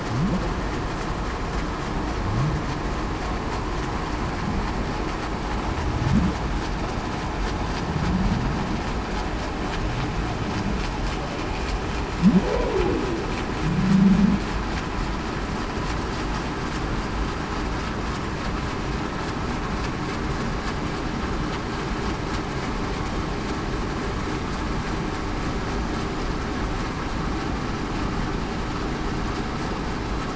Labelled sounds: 12.4	13.0	humpback whale, 0.23 to 0.58 kHz
13.7	14.4	humpback whale, 0.19 to 0.26 kHz

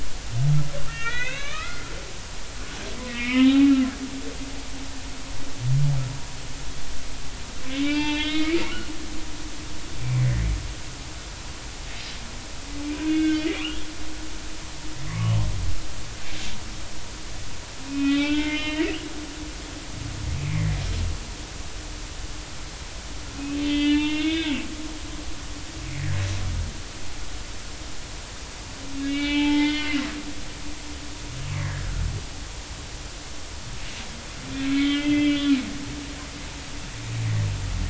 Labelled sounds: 0.9	1.9	humpback whale, 1.1 to 4.0 kHz
3.1	3.7	humpback whale, 0.80 to 3.3 kHz
7.7	8.6	humpback whale, 0.83 to 5.0 kHz
10.0	10.4	humpback whale, 1.8 to 2.4 kHz
12.9	13.5	humpback whale, 1.5 to 3.5 kHz
15.0	15.4	humpback whale, 0.99 to 1.2 kHz
17.9	18.9	humpback whale, 0.80 to 3.8 kHz
23.6	24.6	humpback whale, 1.5 to 4.0 kHz
29.0	30.0	humpback whale, 0.83 to 3.8 kHz
31.5	31.8	humpback whale, 1.6 to 2.1 kHz
34.7	35.6	humpback whale, 1.9 to 3.4 kHz

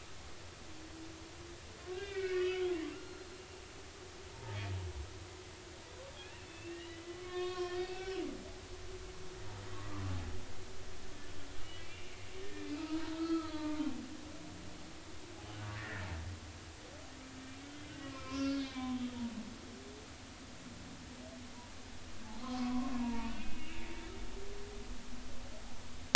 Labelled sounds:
1.9	3.4	humpback whale, 1.3 to 4.4 kHz
4.3	4.6	humpback whale, 0.80 to 0.96 kHz
6.5	8.8	humpback whale, 0.99 to 5.8 kHz
10.1	10.4	humpback whale, 0.80 to 0.86 kHz
11.6	12.1	humpback whale, 1.9 to 2.8 kHz
12.4	13.9	humpback whale, 0.86 to 2.7 kHz
15.8	16.1	humpback whale, 1.6 to 2.0 kHz
17.7	18.9	humpback whale, 0.99 to 5.1 kHz
22.4	23.8	humpback whale, 0.86 to 2.9 kHz

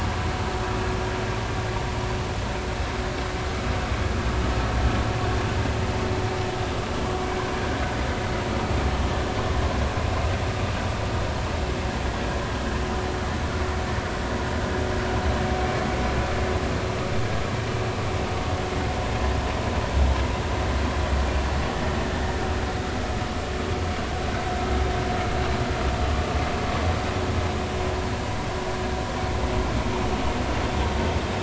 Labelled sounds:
15.6	15.9	vessel noise, 2.2 to 2.4 kHz

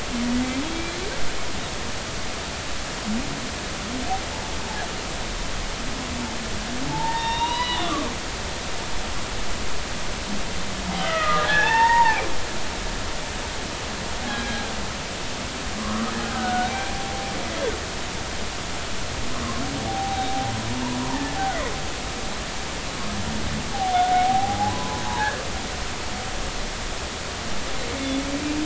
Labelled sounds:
0.6	1.0	humpback whale, 3.2 to 3.4 kHz
6.9	8.0	humpback whale, 0.80 to 4.0 kHz
11.0	12.2	humpback whale, 0.80 to 3.7 kHz
14.3	14.6	humpback whale, 1.6 to 1.7 kHz
15.8	17.0	humpback whale, 0.99 to 2.4 kHz
19.9	20.5	humpback whale, 0.80 to 3.9 kHz
21.1	21.4	humpback whale, 1.7 to 2.0 kHz
23.7	25.4	humpback whale, 0.80 to 1.8 kHz

